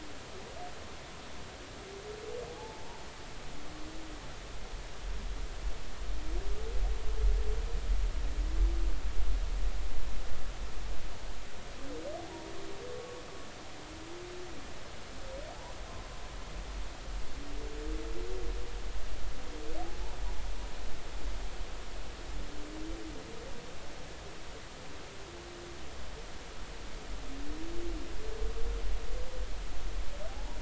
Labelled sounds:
2.5	3.0	humpback whale, 0.80 to 0.99 kHz
30.3	30.5	humpback whale, 0.80 to 0.99 kHz

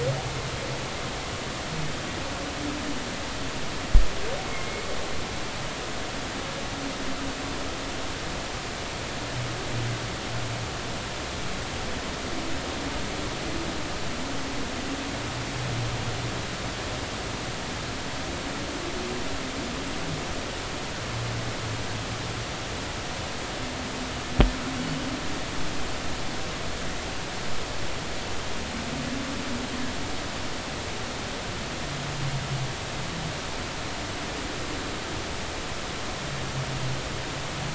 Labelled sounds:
4.5	4.9	humpback whale, 2.0 to 2.2 kHz

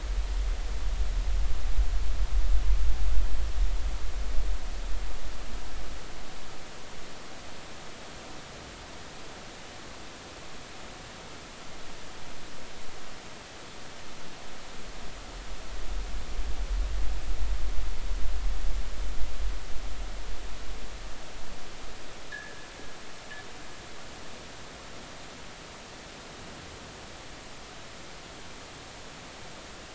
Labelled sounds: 22.3	22.7	fishing gear, 1.6 to 1.8 kHz

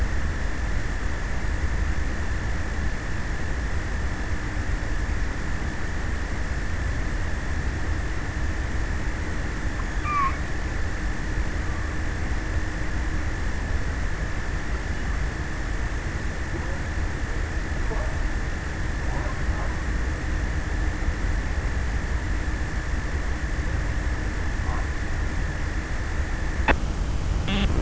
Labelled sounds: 9.3	10.8	killer whale, offshore, 0.55 to 4.7 kHz

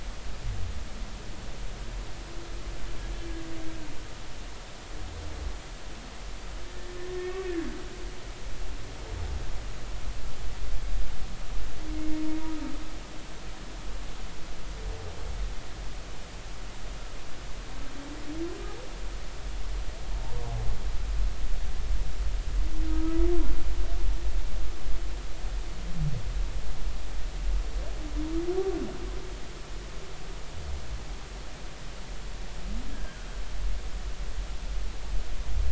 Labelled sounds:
6.7	7.6	humpback whale, 1.6 to 1.9 kHz
22.9	23.2	humpback whale, 1.2 to 1.4 kHz
32.9	33.2	humpback whale, 1.5 to 1.7 kHz

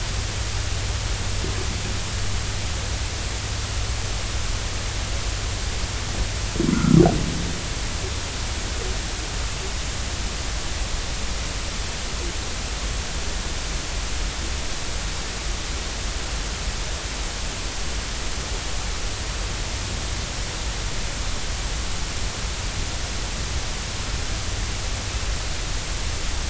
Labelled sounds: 6.7	7.0	humpback whale, 1.2 to 1.5 kHz

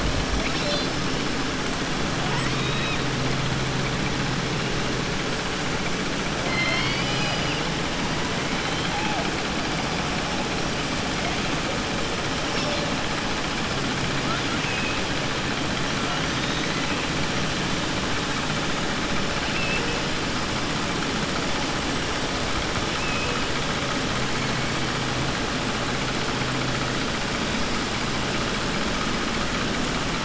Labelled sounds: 2.2	3.0	killer whale, southern resident, 0.74 to 5.3 kHz
6.4	7.6	killer whale, southern resident, 0.72 to 5.8 kHz
14.6	15.0	killer whale, southern resident, 1.6 to 3.4 kHz
22.9	23.4	killer whale, southern resident, 2.5 to 3.2 kHz

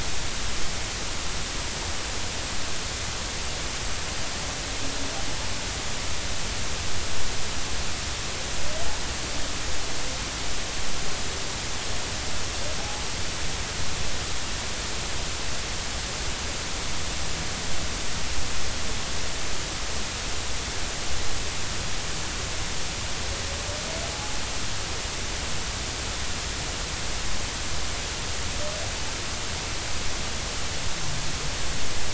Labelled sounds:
12.8	13.0	humpback whale, 0.80 to 0.93 kHz
24.1	24.4	humpback whale, 0.80 to 0.90 kHz

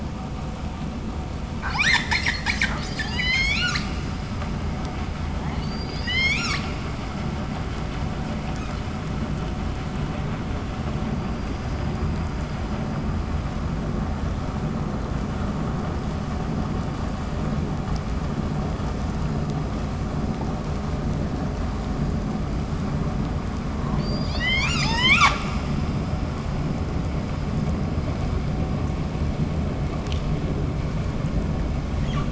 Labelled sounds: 1.5	4.1	killer whale, 0.35 to 8.0 kHz
5.3	6.8	killer whale, 0.29 to 8.0 kHz
23.9	25.5	killer whale, 0.47 to 8.0 kHz
31.9	32.2	killer whale, 0.90 to 8.0 kHz

